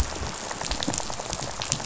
{"label": "biophony, rattle", "recorder": "SoundTrap 500"}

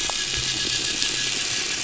{"label": "anthrophony, boat engine", "recorder": "SoundTrap 500"}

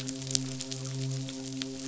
{"label": "biophony, midshipman", "recorder": "SoundTrap 500"}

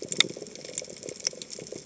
{"label": "biophony, chatter", "recorder": "HydroMoth"}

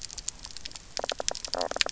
{"label": "biophony, knock croak", "recorder": "SoundTrap 300"}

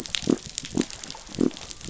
{"label": "biophony", "recorder": "SoundTrap 500"}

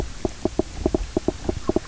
{"label": "biophony, knock croak", "recorder": "SoundTrap 300"}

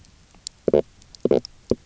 {"label": "biophony, stridulation", "recorder": "SoundTrap 300"}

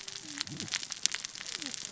{"label": "biophony, cascading saw", "recorder": "SoundTrap 600 or HydroMoth"}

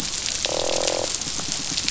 {"label": "biophony", "recorder": "SoundTrap 500"}
{"label": "biophony, croak", "recorder": "SoundTrap 500"}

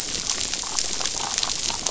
{"label": "biophony, damselfish", "recorder": "SoundTrap 500"}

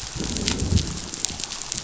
{"label": "biophony, growl", "recorder": "SoundTrap 500"}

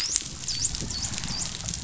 {"label": "biophony, dolphin", "recorder": "SoundTrap 500"}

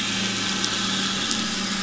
{"label": "anthrophony, boat engine", "recorder": "SoundTrap 500"}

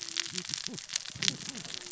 {"label": "biophony, cascading saw", "recorder": "SoundTrap 600 or HydroMoth"}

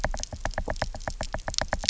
{"label": "biophony, knock", "recorder": "SoundTrap 300"}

